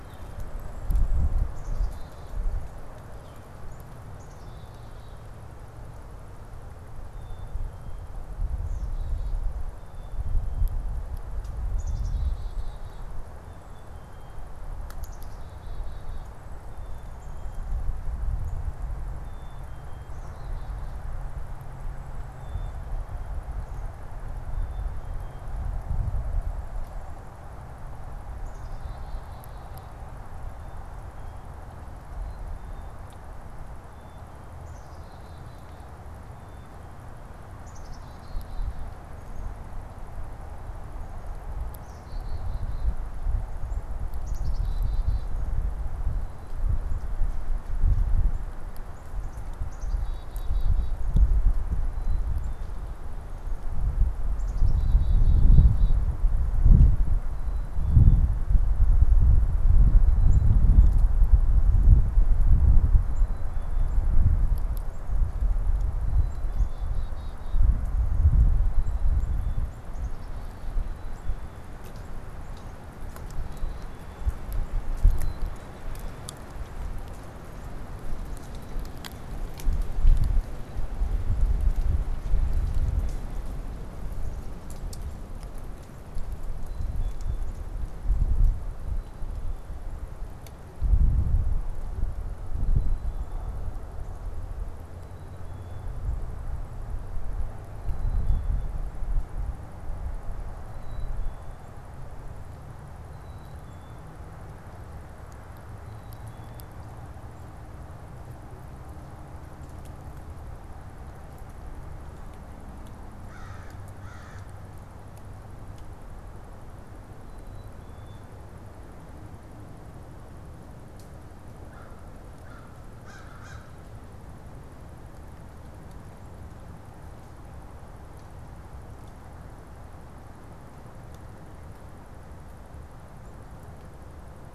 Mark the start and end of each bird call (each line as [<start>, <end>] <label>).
[0.00, 2.64] Black-capped Chickadee (Poecile atricapillus)
[3.04, 3.54] Northern Flicker (Colaptes auratus)
[3.84, 5.24] Black-capped Chickadee (Poecile atricapillus)
[6.94, 71.74] Black-capped Chickadee (Poecile atricapillus)
[73.24, 76.54] Black-capped Chickadee (Poecile atricapillus)
[78.24, 79.44] Black-capped Chickadee (Poecile atricapillus)
[86.54, 87.84] Black-capped Chickadee (Poecile atricapillus)
[94.84, 95.94] Black-capped Chickadee (Poecile atricapillus)
[97.64, 98.84] Black-capped Chickadee (Poecile atricapillus)
[100.64, 101.74] Black-capped Chickadee (Poecile atricapillus)
[102.94, 104.14] Black-capped Chickadee (Poecile atricapillus)
[105.64, 106.84] Black-capped Chickadee (Poecile atricapillus)
[113.04, 114.64] American Crow (Corvus brachyrhynchos)
[117.14, 118.54] Black-capped Chickadee (Poecile atricapillus)
[121.44, 123.94] American Crow (Corvus brachyrhynchos)